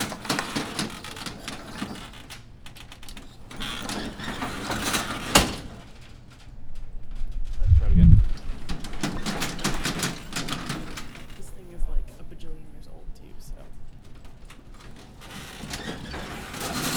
Do the voices belong to women?
no